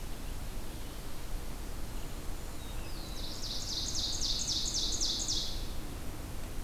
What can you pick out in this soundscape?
Blackburnian Warbler, Black-throated Blue Warbler, Ovenbird